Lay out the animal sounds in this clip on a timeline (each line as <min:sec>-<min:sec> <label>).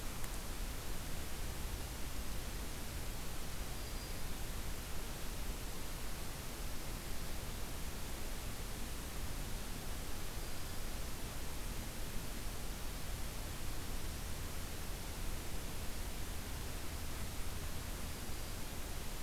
0:03.5-0:04.4 Black-throated Green Warbler (Setophaga virens)
0:17.8-0:18.7 Black-throated Green Warbler (Setophaga virens)